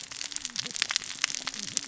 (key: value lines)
label: biophony, cascading saw
recorder: SoundTrap 600 or HydroMoth